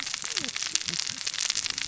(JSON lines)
{"label": "biophony, cascading saw", "recorder": "SoundTrap 600 or HydroMoth"}